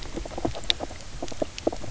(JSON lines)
{"label": "biophony, knock croak", "recorder": "SoundTrap 300"}